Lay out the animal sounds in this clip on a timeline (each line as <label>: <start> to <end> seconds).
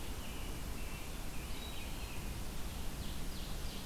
American Robin (Turdus migratorius): 0.0 to 2.5 seconds
Red-eyed Vireo (Vireo olivaceus): 0.0 to 3.9 seconds
Ovenbird (Seiurus aurocapilla): 2.5 to 3.9 seconds